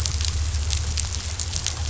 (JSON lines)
{"label": "anthrophony, boat engine", "recorder": "SoundTrap 500"}